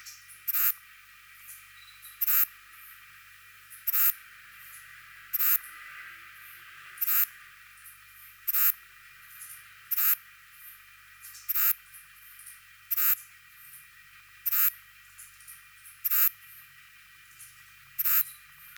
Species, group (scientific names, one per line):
Ephippiger diurnus
Orthoptera